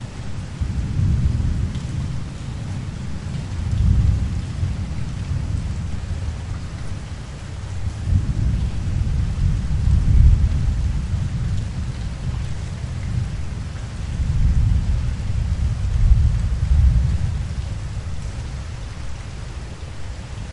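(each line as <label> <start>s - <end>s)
Thunder rumbles quietly in the distance. 0.0s - 18.0s
Slight rain falls continuously. 0.0s - 20.5s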